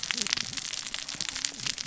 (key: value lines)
label: biophony, cascading saw
recorder: SoundTrap 600 or HydroMoth